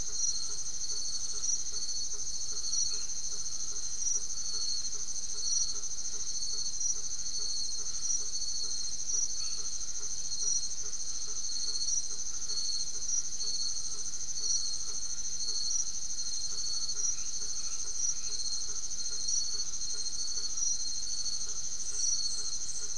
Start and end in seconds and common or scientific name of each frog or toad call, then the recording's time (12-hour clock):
0.0	22.9	blacksmith tree frog
0.0	22.9	Crubixa snouted tree frog
2.7	3.6	white-edged tree frog
9.3	9.8	white-edged tree frog
17.1	18.7	white-edged tree frog
8:30pm